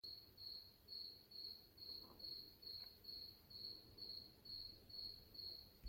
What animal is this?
Gryllus bimaculatus, an orthopteran